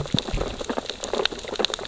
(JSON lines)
{"label": "biophony, sea urchins (Echinidae)", "recorder": "SoundTrap 600 or HydroMoth"}